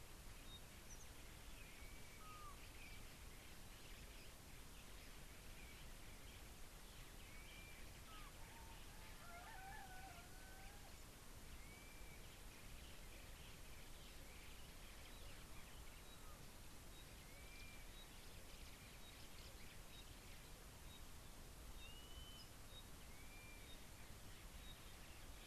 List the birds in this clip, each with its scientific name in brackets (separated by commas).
Pygmy Batis (Batis perkeo), Blue-naped Mousebird (Urocolius macrourus)